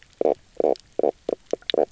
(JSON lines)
{"label": "biophony, knock croak", "recorder": "SoundTrap 300"}